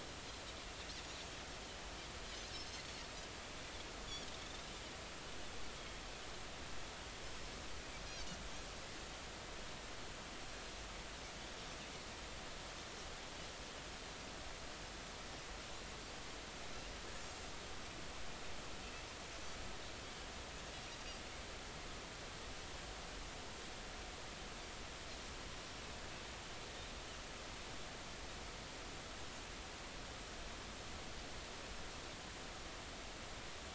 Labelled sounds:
2.6	3.0	Pacific white-sided dolphin, 4.0 to 4.5 kHz
3.8	4.0	Pacific white-sided dolphin, 6.5 to 6.7 kHz

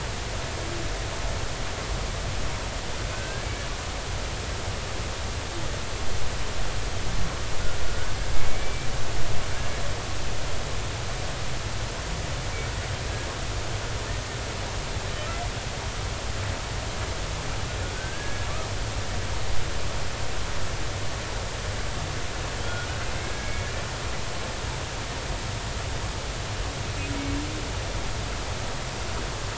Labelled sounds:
3.1	3.5	humpback whale, 1.5 to 1.7 kHz
7.9	8.9	humpback whale, 1.4 to 2.4 kHz
17.9	18.5	humpback whale, 1.5 to 1.7 kHz
23.1	23.7	humpback whale, 1.6 to 2.3 kHz

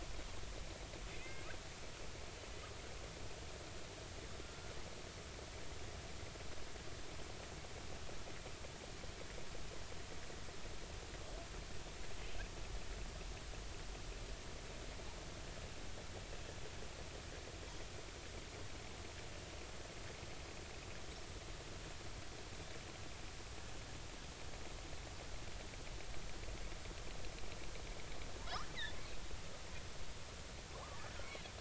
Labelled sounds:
1.2	1.5	killer whale, southern resident, J clan, 2.0 to 2.2 kHz
4.4	4.8	killer whale, southern resident, J clan, 1.3 to 1.5 kHz
28.4	28.7	killer whale, southern resident, J clan, 0.86 to 1.5 kHz

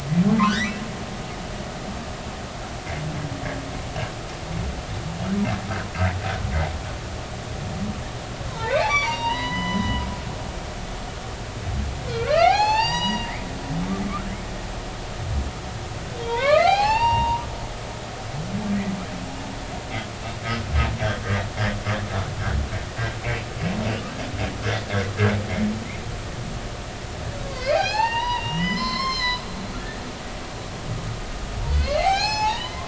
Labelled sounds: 8.5	10.1	humpback whale, 0.83 to 6.0 kHz
12.1	13.3	humpback whale, 0.80 to 6.8 kHz
16.3	17.5	humpback whale, 0.80 to 5.0 kHz
27.4	29.5	humpback whale, 0.80 to 7.5 kHz
31.8	32.8	humpback whale, 0.80 to 6.9 kHz

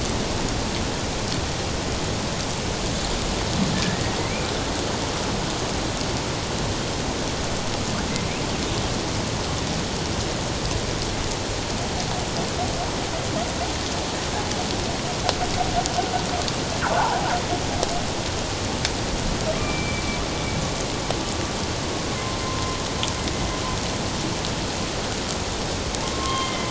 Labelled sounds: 3.7	4.2	humpback whale, 1.6 to 1.9 kHz
17.0	17.3	humpback whale, 0.78 to 1.1 kHz
19.5	20.0	humpback whale, 2.2 to 2.4 kHz
22.4	22.8	humpback whale, 1.0 to 1.1 kHz
26.0	26.6	humpback whale, 1.0 to 3.2 kHz

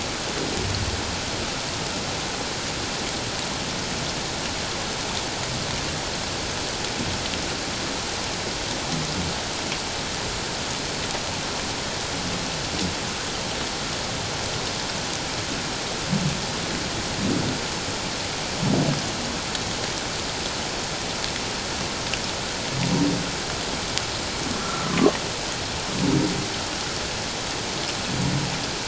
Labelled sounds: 24.6	24.9	humpback whale, 1.3 to 1.4 kHz

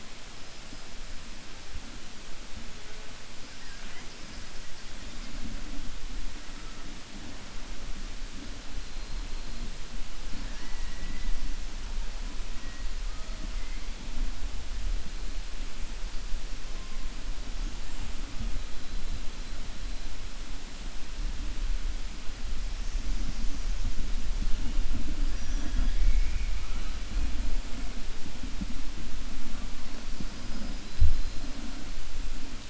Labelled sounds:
3.5	4.1	killer whale, 0.75 to 3.2 kHz
10.3	10.9	killer whale, 0.89 to 2.9 kHz

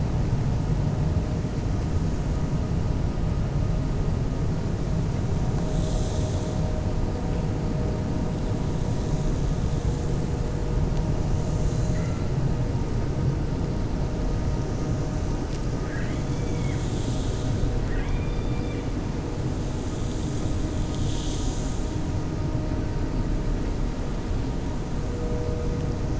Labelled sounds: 17.8	18.8	killer whale, 1.1 to 2.9 kHz

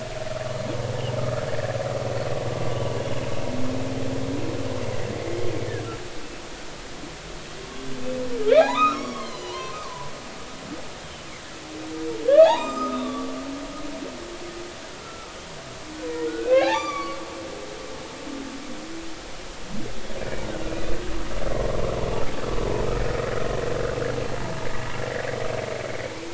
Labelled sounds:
8.5	10.6	humpback whale, 0.80 to 6.1 kHz
12.3	13.4	humpback whale, 0.80 to 7.5 kHz
15.0	15.3	humpback whale, 1.2 to 1.4 kHz
16.3	17.2	humpback whale, 0.80 to 4.8 kHz

